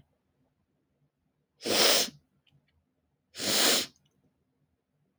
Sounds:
Sniff